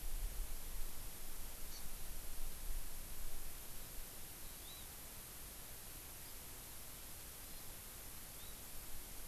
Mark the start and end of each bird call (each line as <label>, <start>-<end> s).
Hawaii Amakihi (Chlorodrepanis virens), 4.4-4.9 s